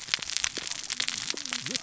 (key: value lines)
label: biophony, cascading saw
recorder: SoundTrap 600 or HydroMoth